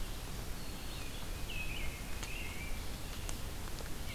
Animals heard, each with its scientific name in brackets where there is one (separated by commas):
American Robin (Turdus migratorius), Black-throated Green Warbler (Setophaga virens), Red-eyed Vireo (Vireo olivaceus)